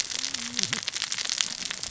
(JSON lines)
{"label": "biophony, cascading saw", "recorder": "SoundTrap 600 or HydroMoth"}